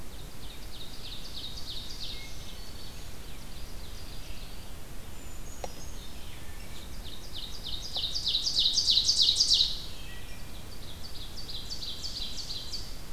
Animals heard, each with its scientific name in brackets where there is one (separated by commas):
Ovenbird (Seiurus aurocapilla), Wood Thrush (Hylocichla mustelina), Brown Creeper (Certhia americana), Black-throated Green Warbler (Setophaga virens)